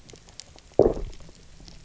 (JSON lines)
{"label": "biophony, knock croak", "recorder": "SoundTrap 300"}